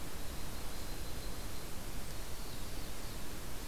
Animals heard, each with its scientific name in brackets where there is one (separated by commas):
Yellow-rumped Warbler (Setophaga coronata), Black-throated Blue Warbler (Setophaga caerulescens)